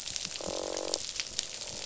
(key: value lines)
label: biophony, croak
recorder: SoundTrap 500